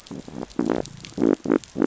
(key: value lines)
label: biophony
recorder: SoundTrap 500